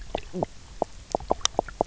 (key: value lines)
label: biophony, knock croak
recorder: SoundTrap 300